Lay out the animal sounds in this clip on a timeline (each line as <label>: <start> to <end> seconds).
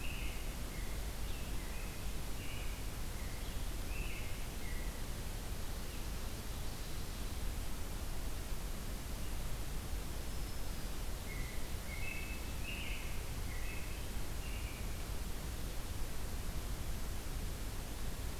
American Robin (Turdus migratorius): 0.0 to 5.0 seconds
Black-throated Green Warbler (Setophaga virens): 9.9 to 10.9 seconds
American Robin (Turdus migratorius): 11.2 to 14.9 seconds